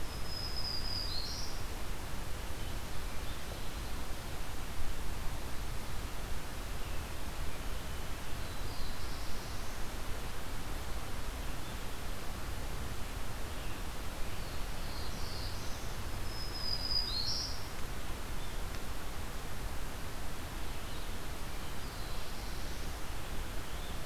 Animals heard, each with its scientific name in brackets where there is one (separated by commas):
Black-throated Green Warbler (Setophaga virens), Black-throated Blue Warbler (Setophaga caerulescens)